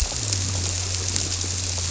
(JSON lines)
{"label": "biophony", "recorder": "SoundTrap 300"}